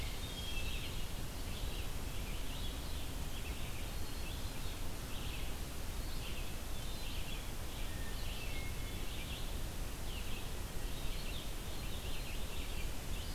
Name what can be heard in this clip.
Hermit Thrush, Red-eyed Vireo